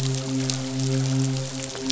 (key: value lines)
label: biophony, midshipman
recorder: SoundTrap 500